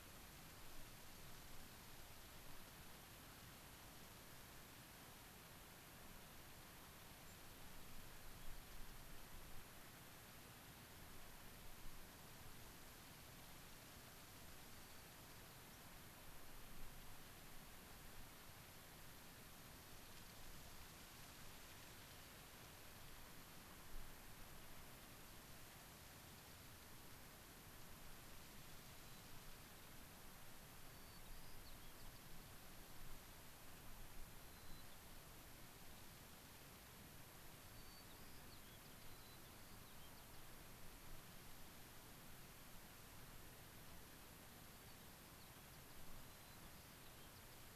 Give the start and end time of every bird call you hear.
[7.26, 7.36] unidentified bird
[14.66, 15.06] White-crowned Sparrow (Zonotrichia leucophrys)
[28.96, 29.36] White-crowned Sparrow (Zonotrichia leucophrys)
[30.86, 32.26] White-crowned Sparrow (Zonotrichia leucophrys)
[34.36, 34.96] White-crowned Sparrow (Zonotrichia leucophrys)
[37.56, 40.46] White-crowned Sparrow (Zonotrichia leucophrys)
[44.66, 47.66] White-crowned Sparrow (Zonotrichia leucophrys)

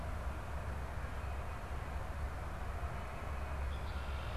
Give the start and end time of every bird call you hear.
[0.00, 4.36] Red-winged Blackbird (Agelaius phoeniceus)

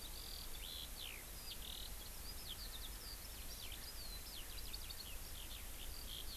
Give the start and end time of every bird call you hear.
[0.00, 6.37] Eurasian Skylark (Alauda arvensis)

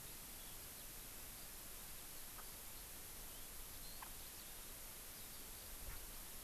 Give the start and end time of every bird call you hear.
[0.00, 5.70] Eurasian Skylark (Alauda arvensis)
[4.00, 4.10] Chinese Hwamei (Garrulax canorus)
[5.90, 6.00] Chinese Hwamei (Garrulax canorus)

